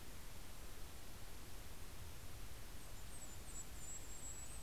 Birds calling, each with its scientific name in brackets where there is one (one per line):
Golden-crowned Kinglet (Regulus satrapa)